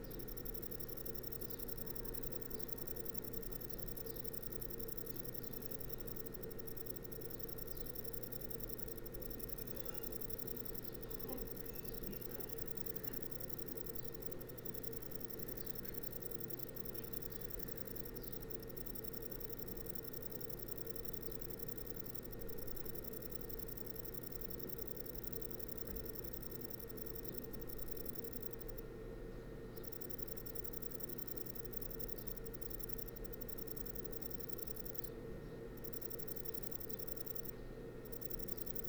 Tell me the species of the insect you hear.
Vichetia oblongicollis